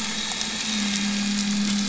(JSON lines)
{"label": "anthrophony, boat engine", "recorder": "SoundTrap 500"}